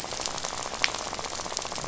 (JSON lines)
{"label": "biophony, rattle", "recorder": "SoundTrap 500"}